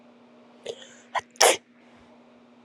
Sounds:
Sneeze